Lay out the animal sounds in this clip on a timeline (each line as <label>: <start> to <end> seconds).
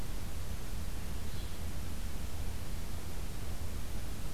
Yellow-bellied Flycatcher (Empidonax flaviventris): 1.3 to 1.6 seconds